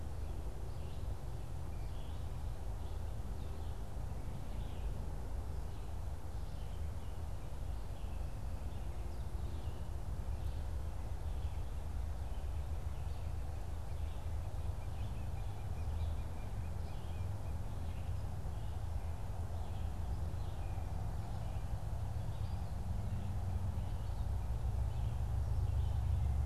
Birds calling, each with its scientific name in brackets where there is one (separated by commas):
Cooper's Hawk (Accipiter cooperii), Red-eyed Vireo (Vireo olivaceus)